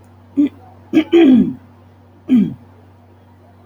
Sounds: Throat clearing